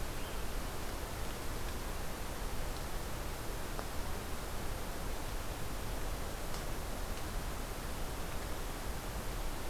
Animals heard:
forest ambience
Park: Hubbard Brook Experimental Forest